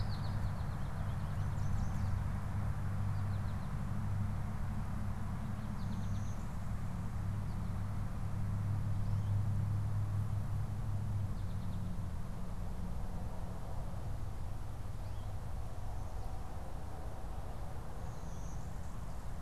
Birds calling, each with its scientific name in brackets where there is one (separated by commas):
Yellow Warbler (Setophaga petechia), Blue-winged Warbler (Vermivora cyanoptera), American Goldfinch (Spinus tristis)